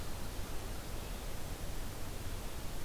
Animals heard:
forest ambience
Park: Acadia National Park